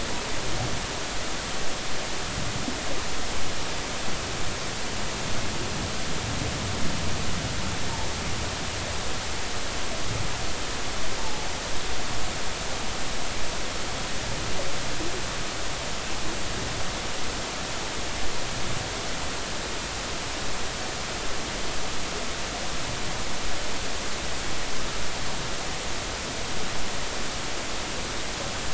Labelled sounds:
11.2	11.5	humpback whale, 0.80 to 0.93 kHz

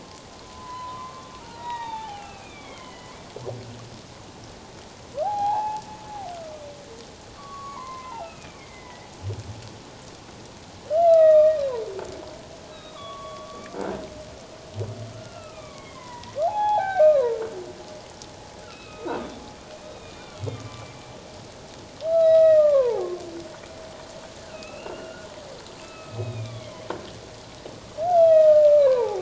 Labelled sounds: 0.4	3.2	humpback whale, 0.78 to 3.9 kHz
5.2	5.8	humpback whale, 0.78 to 4.2 kHz
7.4	9.1	humpback whale, 0.78 to 2.8 kHz
10.9	11.6	humpback whale, 1.1 to 4.0 kHz
12.7	14.0	humpback whale, 1.0 to 4.0 kHz
15.1	17.4	humpback whale, 0.78 to 3.4 kHz
18.6	19.2	humpback whale, 1.2 to 3.9 kHz
19.8	20.9	humpback whale, 1.1 to 3.8 kHz
22.1	23.1	humpback whale, 0.78 to 5.2 kHz
24.4	25.3	humpback whale, 1.2 to 3.0 kHz
25.8	26.9	humpback whale, 1.2 to 3.6 kHz
28.1	29.2	humpback whale, 0.78 to 3.4 kHz

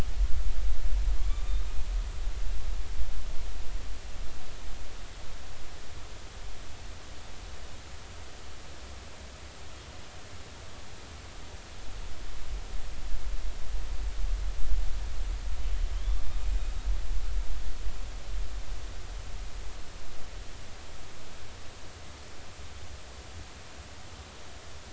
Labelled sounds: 1.3	1.6	killer whale, northern resident, A clan, AA subclan, 1.1 to 3.7 kHz

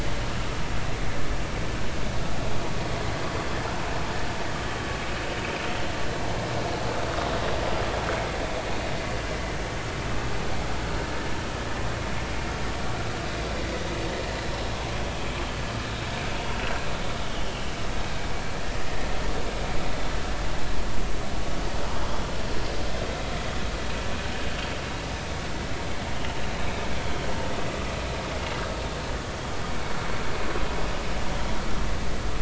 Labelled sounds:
17.3	17.7	vessel noise, 2.8 to 3.4 kHz

